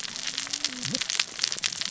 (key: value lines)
label: biophony, cascading saw
recorder: SoundTrap 600 or HydroMoth